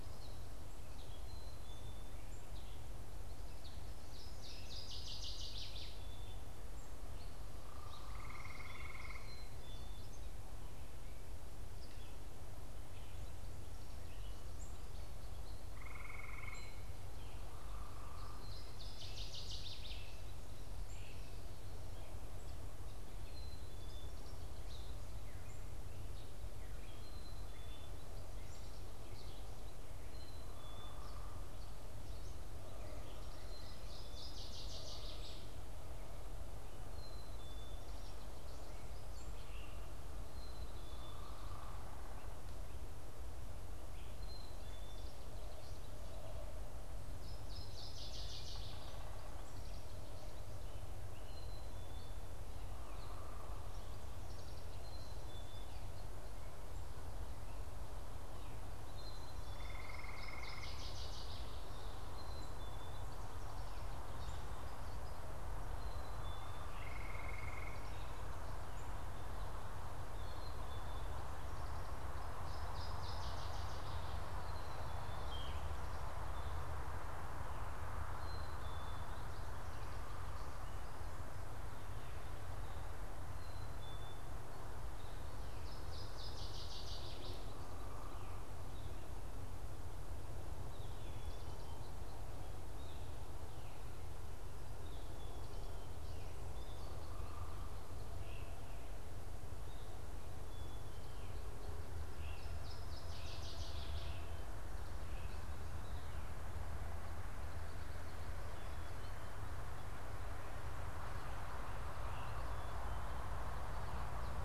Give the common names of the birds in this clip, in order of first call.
American Goldfinch, Gray Catbird, Black-capped Chickadee, Northern Waterthrush, unidentified bird, Great Crested Flycatcher, Yellow-throated Vireo